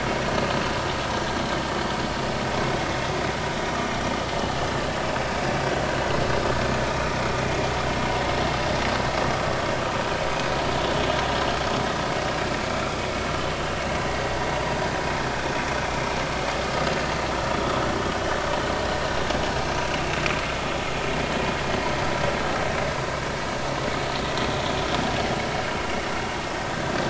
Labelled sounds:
15.8	16.1	vessel noise, 2.3 to 2.4 kHz

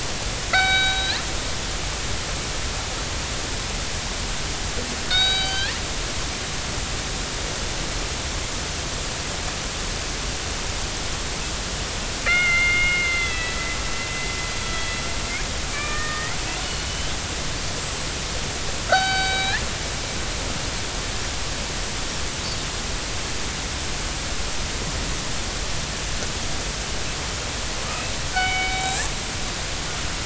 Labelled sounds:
0.5	1.2	killer whale, northern resident, G clan, 1.3 to 4.6 kHz
5.1	5.7	killer whale, northern resident, G clan, 1.4 to 4.8 kHz
12.3	13.8	killer whale, northern resident, G clan, 1.2 to 4.2 kHz
14.6	15.0	killer whale, northern resident, G clan, 1.9 to 3.4 kHz
15.7	16.4	killer whale, northern resident, G clan, 1.1 to 2.4 kHz
16.9	18.1	killer whale, northern resident, G clan, 2.9 to 7.9 kHz
18.9	19.6	killer whale, northern resident, G clan, 0.80 to 4.7 kHz
28.3	29.0	killer whale, northern resident, G clan, 1.4 to 3.9 kHz

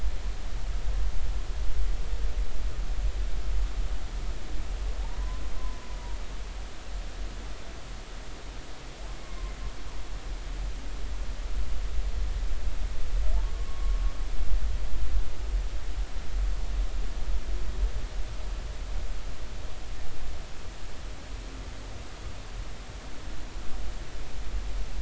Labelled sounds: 13.5	14.0	humpback whale, 1.1 to 1.2 kHz

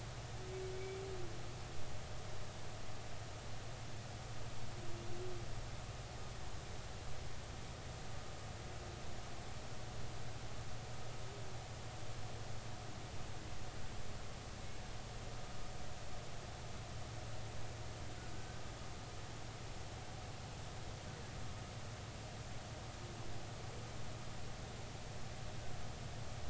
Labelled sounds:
0.7	1.0	humpback whale, 2.2 to 2.4 kHz
18.3	18.6	humpback whale, 1.5 to 1.6 kHz

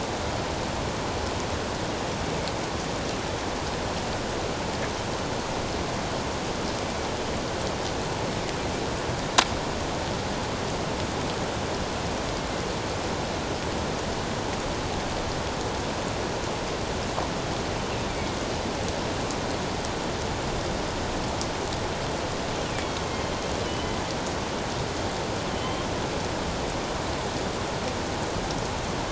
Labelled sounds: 18.1	18.4	killer whale, northern resident, A clan, AA subclan, 2.1 to 2.4 kHz
22.7	23.0	killer whale, northern resident, A clan, AA subclan, 2.2 to 2.4 kHz
23.6	24.0	killer whale, northern resident, A clan, AA subclan, 2.9 to 3.1 kHz
25.5	25.9	killer whale, northern resident, A clan, AA subclan, 3.0 to 3.2 kHz

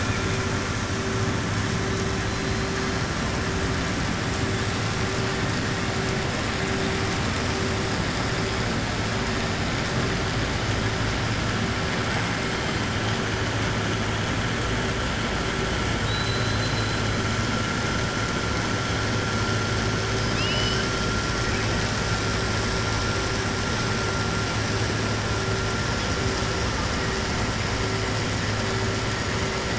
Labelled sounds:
15.9	17.0	killer whale, southern resident, 2.9 to 4.1 kHz
20.2	20.8	killer whale, southern resident, 2.5 to 6.0 kHz

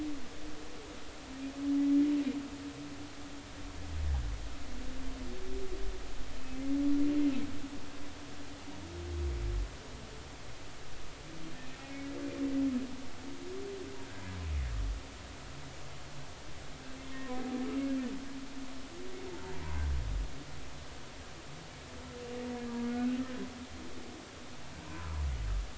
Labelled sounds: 17.1	17.9	humpback whale, 0.96 to 2.8 kHz
22.6	23.2	humpback whale, 1.3 to 1.7 kHz

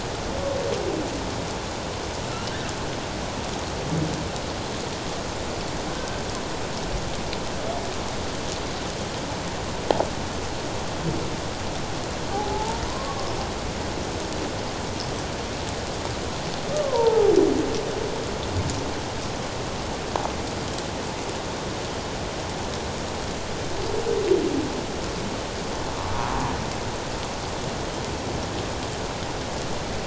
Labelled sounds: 12.3	13.3	humpback whale, 0.78 to 1.2 kHz
16.7	17.3	humpback whale, 0.78 to 1.3 kHz

